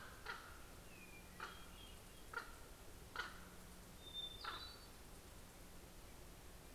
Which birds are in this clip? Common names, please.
Common Raven, Hermit Thrush